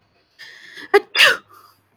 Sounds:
Sneeze